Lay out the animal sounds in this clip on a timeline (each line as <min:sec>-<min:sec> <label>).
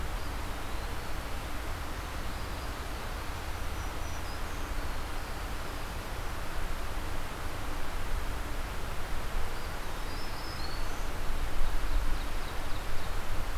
0:00.0-0:01.4 Eastern Wood-Pewee (Contopus virens)
0:01.6-0:02.8 Black-throated Green Warbler (Setophaga virens)
0:03.3-0:04.8 Black-throated Green Warbler (Setophaga virens)
0:04.5-0:06.3 Black-throated Blue Warbler (Setophaga caerulescens)
0:09.6-0:11.2 Black-throated Green Warbler (Setophaga virens)
0:11.2-0:13.4 Ovenbird (Seiurus aurocapilla)